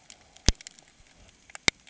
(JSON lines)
{"label": "ambient", "recorder": "HydroMoth"}